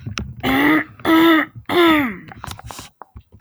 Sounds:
Throat clearing